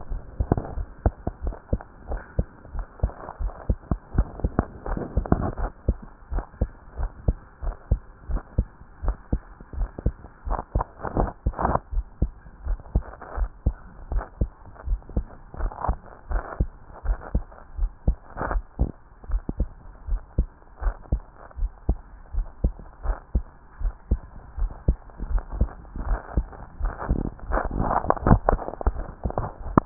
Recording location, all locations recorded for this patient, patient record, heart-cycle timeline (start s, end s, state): tricuspid valve (TV)
aortic valve (AV)+pulmonary valve (PV)+tricuspid valve (TV)+mitral valve (MV)
#Age: Child
#Sex: Male
#Height: 141.0 cm
#Weight: 30.7 kg
#Pregnancy status: False
#Murmur: Absent
#Murmur locations: nan
#Most audible location: nan
#Systolic murmur timing: nan
#Systolic murmur shape: nan
#Systolic murmur grading: nan
#Systolic murmur pitch: nan
#Systolic murmur quality: nan
#Diastolic murmur timing: nan
#Diastolic murmur shape: nan
#Diastolic murmur grading: nan
#Diastolic murmur pitch: nan
#Diastolic murmur quality: nan
#Outcome: Normal
#Campaign: 2015 screening campaign
0.00	6.29	unannotated
6.29	6.44	S1
6.44	6.58	systole
6.58	6.70	S2
6.70	6.98	diastole
6.98	7.12	S1
7.12	7.26	systole
7.26	7.36	S2
7.36	7.64	diastole
7.64	7.76	S1
7.76	7.88	systole
7.88	8.00	S2
8.00	8.30	diastole
8.30	8.42	S1
8.42	8.54	systole
8.54	8.66	S2
8.66	9.04	diastole
9.04	9.16	S1
9.16	9.32	systole
9.32	9.42	S2
9.42	9.78	diastole
9.78	9.90	S1
9.90	10.04	systole
10.04	10.14	S2
10.14	10.46	diastole
10.46	10.60	S1
10.60	10.74	systole
10.74	10.84	S2
10.84	11.16	diastole
11.16	11.30	S1
11.30	11.42	systole
11.42	11.54	S2
11.54	11.92	diastole
11.92	12.06	S1
12.06	12.18	systole
12.18	12.30	S2
12.30	12.64	diastole
12.64	12.80	S1
12.80	12.94	systole
12.94	13.04	S2
13.04	13.38	diastole
13.38	13.50	S1
13.50	13.62	systole
13.62	13.78	S2
13.78	14.10	diastole
14.10	14.24	S1
14.24	14.40	systole
14.40	14.50	S2
14.50	14.86	diastole
14.86	15.00	S1
15.00	15.14	systole
15.14	15.26	S2
15.26	15.60	diastole
15.60	15.72	S1
15.72	15.86	systole
15.86	15.98	S2
15.98	16.30	diastole
16.30	16.44	S1
16.44	16.58	systole
16.58	16.72	S2
16.72	17.06	diastole
17.06	17.18	S1
17.18	17.32	systole
17.32	17.44	S2
17.44	17.76	diastole
17.76	17.90	S1
17.90	18.04	systole
18.04	18.18	S2
18.18	18.50	diastole
18.50	18.64	S1
18.64	18.78	systole
18.78	18.90	S2
18.90	19.28	diastole
19.28	19.42	S1
19.42	19.58	systole
19.58	19.68	S2
19.68	20.06	diastole
20.06	20.20	S1
20.20	20.34	systole
20.34	20.48	S2
20.48	20.82	diastole
20.82	20.94	S1
20.94	21.08	systole
21.08	21.22	S2
21.22	21.58	diastole
21.58	21.72	S1
21.72	21.84	systole
21.84	21.98	S2
21.98	22.34	diastole
22.34	22.48	S1
22.48	22.62	systole
22.62	22.74	S2
22.74	23.04	diastole
23.04	23.18	S1
23.18	23.32	systole
23.32	23.46	S2
23.46	23.82	diastole
23.82	23.94	S1
23.94	24.08	systole
24.08	24.24	S2
24.24	24.58	diastole
24.58	24.72	S1
24.72	24.84	systole
24.84	24.98	S2
24.98	25.28	diastole
25.28	25.44	S1
25.44	29.86	unannotated